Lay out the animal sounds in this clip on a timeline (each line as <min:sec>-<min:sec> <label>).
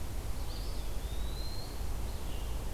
0:00.2-0:01.9 Eastern Wood-Pewee (Contopus virens)
0:02.0-0:02.7 Scarlet Tanager (Piranga olivacea)